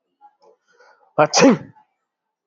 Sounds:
Sneeze